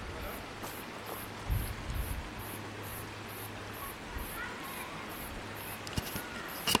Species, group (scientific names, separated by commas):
Atrapsalta encaustica, Cicadidae